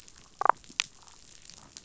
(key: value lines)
label: biophony, damselfish
recorder: SoundTrap 500